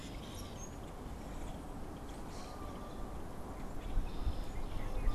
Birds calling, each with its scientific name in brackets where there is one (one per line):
Common Grackle (Quiscalus quiscula)
Red-winged Blackbird (Agelaius phoeniceus)
Canada Goose (Branta canadensis)